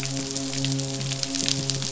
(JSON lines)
{"label": "biophony, midshipman", "recorder": "SoundTrap 500"}